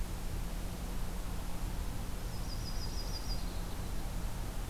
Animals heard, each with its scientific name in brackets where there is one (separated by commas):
Yellow-rumped Warbler (Setophaga coronata)